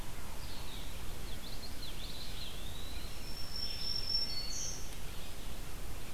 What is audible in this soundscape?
Red-eyed Vireo, Common Yellowthroat, Eastern Wood-Pewee, Black-throated Green Warbler